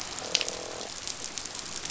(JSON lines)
{"label": "biophony, croak", "recorder": "SoundTrap 500"}